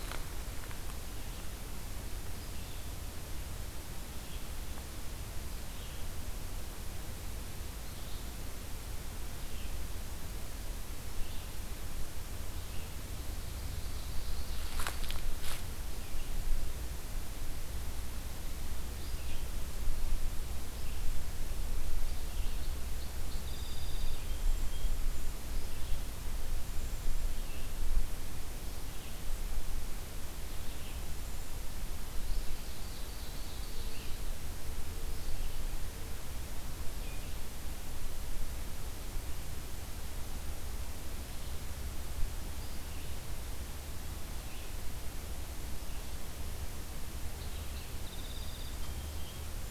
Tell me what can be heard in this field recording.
Red-eyed Vireo, Ovenbird, Song Sparrow, Golden-crowned Kinglet